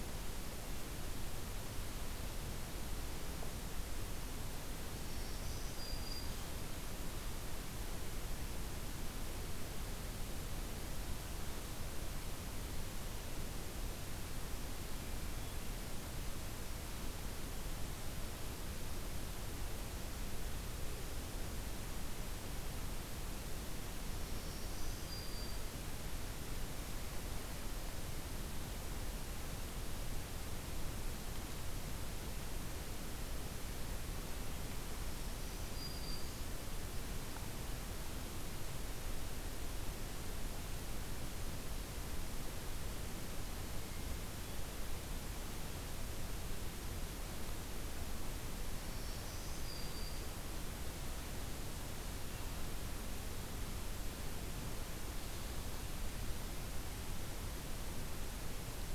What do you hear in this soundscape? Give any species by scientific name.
Setophaga virens